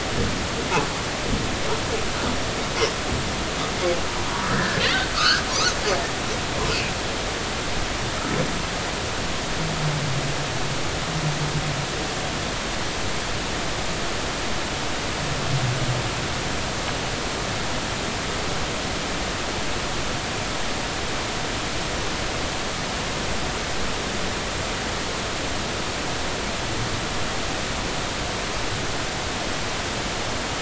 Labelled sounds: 4.5	5.4	humpback whale, 1.1 to 1.9 kHz

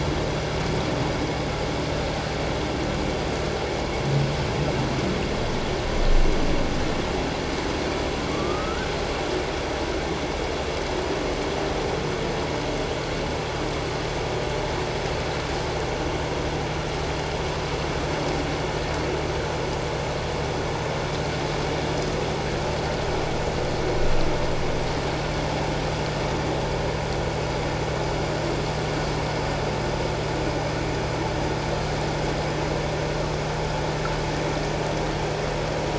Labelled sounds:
8.3	8.9	humpback whale, 1.1 to 1.6 kHz

